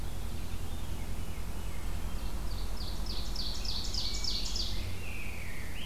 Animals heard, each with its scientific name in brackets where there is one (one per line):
Veery (Catharus fuscescens)
Ovenbird (Seiurus aurocapilla)
Rose-breasted Grosbeak (Pheucticus ludovicianus)